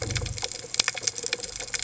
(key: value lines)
label: biophony
recorder: HydroMoth